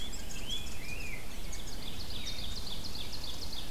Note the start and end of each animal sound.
[0.00, 1.19] Rose-breasted Grosbeak (Pheucticus ludovicianus)
[0.00, 2.25] Red Squirrel (Tamiasciurus hudsonicus)
[1.45, 3.62] Ovenbird (Seiurus aurocapilla)
[3.11, 3.70] Red Squirrel (Tamiasciurus hudsonicus)

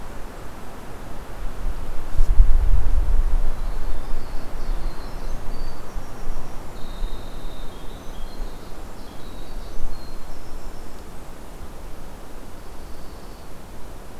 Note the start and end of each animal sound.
[3.45, 11.53] Winter Wren (Troglodytes hiemalis)
[12.50, 13.69] Dark-eyed Junco (Junco hyemalis)

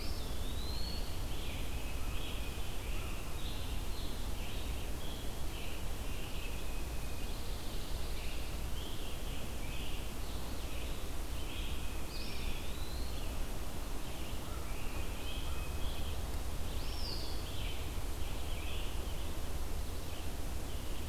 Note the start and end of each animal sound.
[0.00, 1.11] Eastern Wood-Pewee (Contopus virens)
[0.00, 21.09] Red-eyed Vireo (Vireo olivaceus)
[0.87, 3.48] Scarlet Tanager (Piranga olivacea)
[1.34, 2.77] Tufted Titmouse (Baeolophus bicolor)
[4.22, 6.60] Scarlet Tanager (Piranga olivacea)
[6.27, 7.41] Tufted Titmouse (Baeolophus bicolor)
[6.80, 8.58] Pine Warbler (Setophaga pinus)
[8.63, 12.54] Scarlet Tanager (Piranga olivacea)
[11.34, 12.56] Tufted Titmouse (Baeolophus bicolor)
[12.02, 13.29] Eastern Wood-Pewee (Contopus virens)
[14.09, 16.04] Scarlet Tanager (Piranga olivacea)
[16.66, 17.35] Eastern Wood-Pewee (Contopus virens)
[17.32, 19.24] Scarlet Tanager (Piranga olivacea)

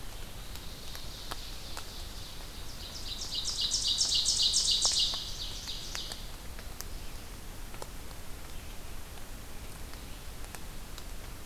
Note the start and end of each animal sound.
[0.00, 11.46] Red-eyed Vireo (Vireo olivaceus)
[0.05, 6.41] Ovenbird (Seiurus aurocapilla)

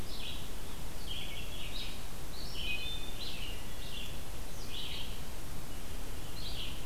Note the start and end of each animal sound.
[0.00, 6.85] Red-eyed Vireo (Vireo olivaceus)
[2.44, 3.16] Wood Thrush (Hylocichla mustelina)

